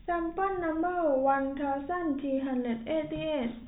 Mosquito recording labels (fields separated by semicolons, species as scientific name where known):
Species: no mosquito; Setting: cup